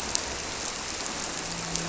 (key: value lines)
label: biophony, grouper
recorder: SoundTrap 300